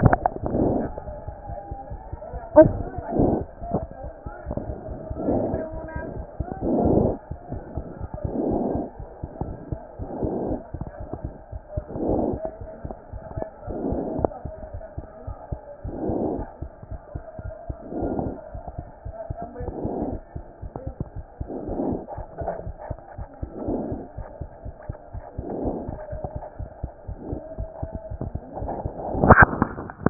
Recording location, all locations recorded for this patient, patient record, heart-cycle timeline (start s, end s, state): mitral valve (MV)
aortic valve (AV)+mitral valve (MV)
#Age: Child
#Sex: Male
#Height: 95.0 cm
#Weight: 14.5 kg
#Pregnancy status: False
#Murmur: Absent
#Murmur locations: nan
#Most audible location: nan
#Systolic murmur timing: nan
#Systolic murmur shape: nan
#Systolic murmur grading: nan
#Systolic murmur pitch: nan
#Systolic murmur quality: nan
#Diastolic murmur timing: nan
#Diastolic murmur shape: nan
#Diastolic murmur grading: nan
#Diastolic murmur pitch: nan
#Diastolic murmur quality: nan
#Outcome: Normal
#Campaign: 2014 screening campaign
0.00	23.53	unannotated
23.53	23.68	diastole
23.68	23.80	S1
23.80	23.92	systole
23.92	24.02	S2
24.02	24.18	diastole
24.18	24.26	S1
24.26	24.40	systole
24.40	24.50	S2
24.50	24.66	diastole
24.66	24.74	S1
24.74	24.88	systole
24.88	24.96	S2
24.96	25.18	diastole
25.18	25.24	S1
25.24	25.38	systole
25.38	25.44	S2
25.44	25.62	diastole
25.62	25.76	S1
25.76	25.88	systole
25.88	25.98	S2
25.98	26.14	diastole
26.14	26.22	S1
26.22	26.34	systole
26.34	26.44	S2
26.44	26.60	diastole
26.60	26.70	S1
26.70	26.82	systole
26.82	26.92	S2
26.92	27.10	diastole
27.10	27.18	S1
27.18	27.30	systole
27.30	27.40	S2
27.40	27.58	diastole
27.58	27.68	S1
27.68	27.82	systole
27.82	27.99	S2
27.99	28.20	diastole
28.20	28.31	S1
28.31	30.10	unannotated